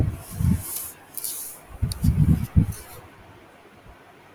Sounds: Sneeze